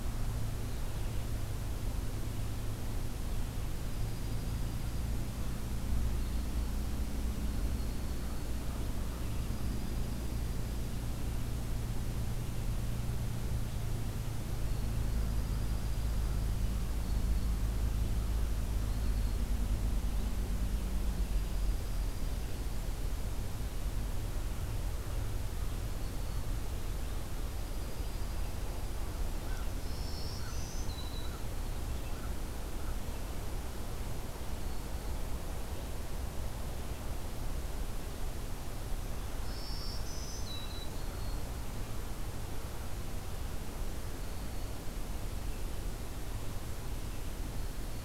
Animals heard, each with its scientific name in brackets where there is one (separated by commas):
Black-throated Green Warbler (Setophaga virens), American Crow (Corvus brachyrhynchos), Dark-eyed Junco (Junco hyemalis)